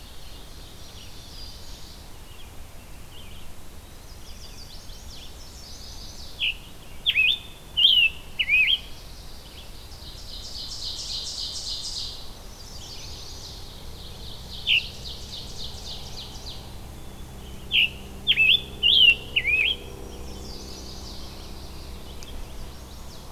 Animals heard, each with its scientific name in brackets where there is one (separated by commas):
Mourning Warbler (Geothlypis philadelphia), Red-eyed Vireo (Vireo olivaceus), Black-throated Green Warbler (Setophaga virens), Black-capped Chickadee (Poecile atricapillus), Scarlet Tanager (Piranga olivacea), Ovenbird (Seiurus aurocapilla), Chestnut-sided Warbler (Setophaga pensylvanica), Eastern Wood-Pewee (Contopus virens)